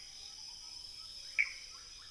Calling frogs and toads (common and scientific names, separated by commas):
rufous frog (Leptodactylus fuscus), Pithecopus azureus